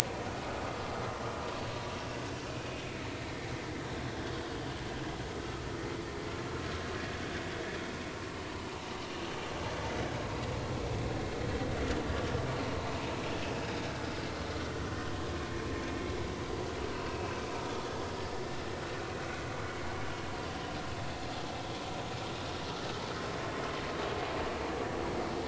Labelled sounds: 8.7	9.0	vessel noise, 0.83 to 0.99 kHz
14.9	15.1	vessel noise, 1.8 to 2.0 kHz
16.9	18.0	vessel noise, 2.5 to 3.6 kHz
19.7	19.9	vessel noise, 2.1 to 2.3 kHz

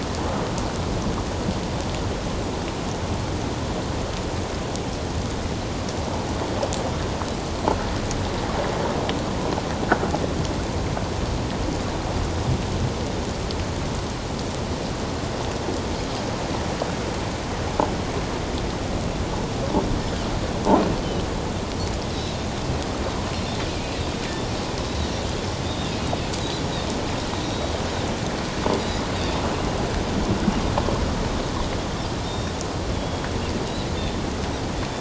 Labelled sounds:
25.7	25.9	Pacific white-sided dolphin, 3.4 to 3.8 kHz
27.4	27.7	Pacific white-sided dolphin, 3.8 to 3.9 kHz
28.8	29.1	Pacific white-sided dolphin, 4.7 to 5.0 kHz
32.2	32.5	Pacific white-sided dolphin, 3.6 to 5.6 kHz
32.9	33.3	Pacific white-sided dolphin, 3.2 to 3.4 kHz

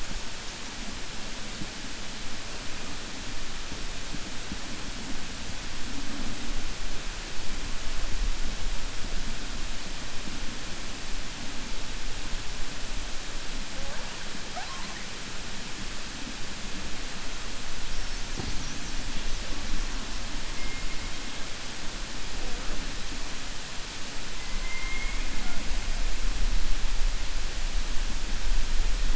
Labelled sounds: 24.5	25.2	killer whale, 1.1 to 2.5 kHz

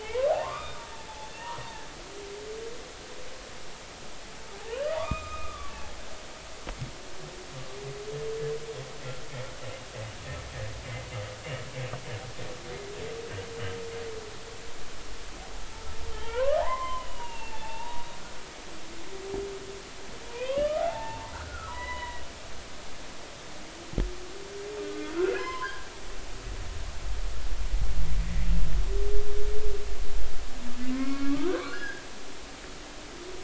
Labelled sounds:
0.0	0.8	humpback whale, 0.80 to 3.7 kHz
4.5	5.7	humpback whale, 0.80 to 7.5 kHz
16.1	18.0	humpback whale, 0.80 to 3.3 kHz
20.3	22.2	humpback whale, 0.80 to 4.0 kHz
25.1	25.9	humpback whale, 0.96 to 5.3 kHz
30.8	32.0	humpback whale, 1.0 to 2.3 kHz

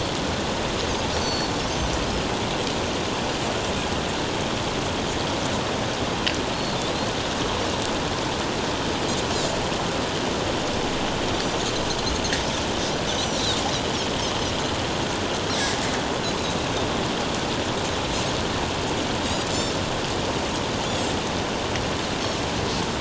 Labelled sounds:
1.2	1.5	Pacific white-sided dolphin, 4.3 to 6.2 kHz
6.5	6.8	Pacific white-sided dolphin, 4.1 to 4.4 kHz
13.1	13.4	Pacific white-sided dolphin, 5.3 to 6.2 kHz

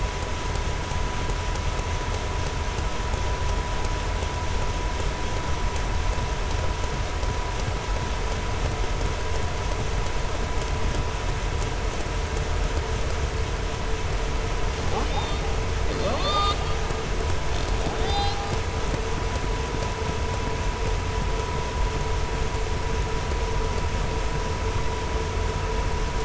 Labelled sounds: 17.9	18.4	killer whale, southern resident, 2.5 to 6.0 kHz

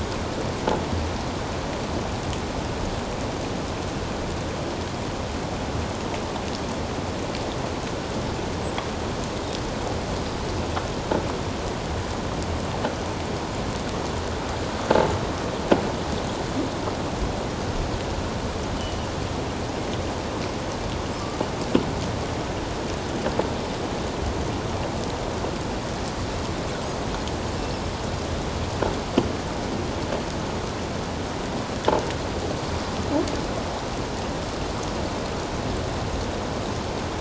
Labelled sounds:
18.8	19.1	killer whale, 2.9 to 3.1 kHz

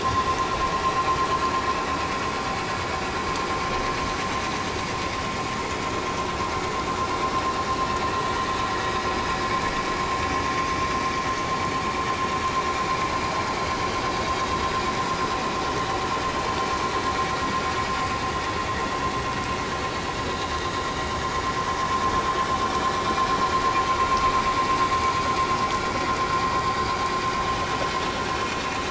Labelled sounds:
8.3	8.6	vessel noise, 1.8 to 2.0 kHz
26.7	26.9	vessel noise, 4.6 to 4.8 kHz

